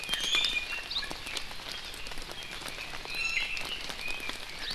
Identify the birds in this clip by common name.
Iiwi